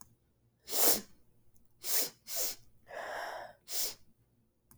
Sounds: Sniff